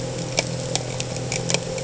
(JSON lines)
{"label": "anthrophony, boat engine", "recorder": "HydroMoth"}